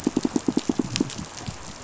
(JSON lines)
{"label": "biophony, pulse", "recorder": "SoundTrap 500"}